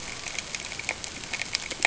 {"label": "ambient", "recorder": "HydroMoth"}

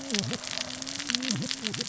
{"label": "biophony, cascading saw", "recorder": "SoundTrap 600 or HydroMoth"}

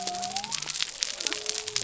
{"label": "biophony", "recorder": "SoundTrap 300"}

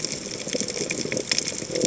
{"label": "biophony", "recorder": "HydroMoth"}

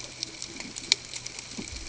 {"label": "ambient", "recorder": "HydroMoth"}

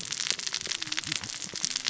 {"label": "biophony, cascading saw", "recorder": "SoundTrap 600 or HydroMoth"}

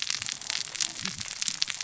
{"label": "biophony, cascading saw", "recorder": "SoundTrap 600 or HydroMoth"}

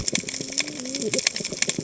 {"label": "biophony, cascading saw", "recorder": "HydroMoth"}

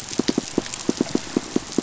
{"label": "biophony, pulse", "recorder": "SoundTrap 500"}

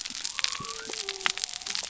{"label": "biophony", "recorder": "SoundTrap 300"}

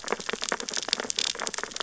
{"label": "biophony, sea urchins (Echinidae)", "recorder": "SoundTrap 600 or HydroMoth"}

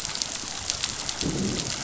{"label": "biophony, growl", "recorder": "SoundTrap 500"}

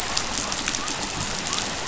{"label": "biophony", "recorder": "SoundTrap 500"}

